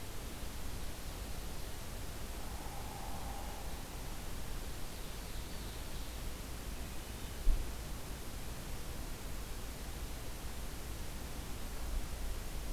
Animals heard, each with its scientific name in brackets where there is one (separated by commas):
Ovenbird (Seiurus aurocapilla), Hairy Woodpecker (Dryobates villosus), Hermit Thrush (Catharus guttatus)